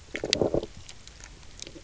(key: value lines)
label: biophony, low growl
recorder: SoundTrap 300